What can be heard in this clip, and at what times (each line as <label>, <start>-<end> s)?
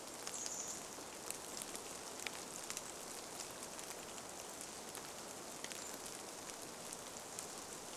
Chestnut-backed Chickadee call, 0-2 s
rain, 0-8 s